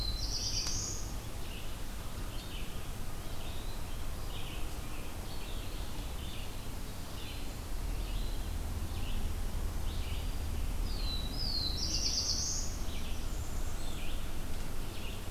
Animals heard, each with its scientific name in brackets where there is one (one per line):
Red-eyed Vireo (Vireo olivaceus)
Black-throated Green Warbler (Setophaga virens)
Black-throated Blue Warbler (Setophaga caerulescens)
Blackburnian Warbler (Setophaga fusca)